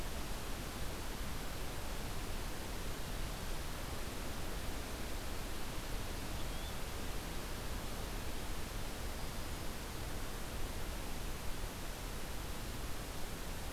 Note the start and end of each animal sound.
6.3s-6.7s: Yellow-bellied Flycatcher (Empidonax flaviventris)

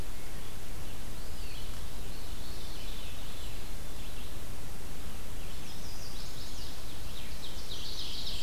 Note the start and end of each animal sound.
0.0s-1.8s: Red-eyed Vireo (Vireo olivaceus)
1.0s-2.0s: Eastern Wood-Pewee (Contopus virens)
1.8s-3.8s: Veery (Catharus fuscescens)
2.6s-8.4s: Red-eyed Vireo (Vireo olivaceus)
3.2s-4.3s: Black-capped Chickadee (Poecile atricapillus)
5.5s-6.9s: Chestnut-sided Warbler (Setophaga pensylvanica)
7.3s-8.4s: Mourning Warbler (Geothlypis philadelphia)

